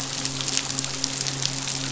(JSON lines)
{"label": "biophony, midshipman", "recorder": "SoundTrap 500"}